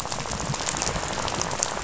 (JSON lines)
{"label": "biophony, rattle", "recorder": "SoundTrap 500"}